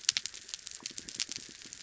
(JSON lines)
{"label": "biophony", "recorder": "SoundTrap 300"}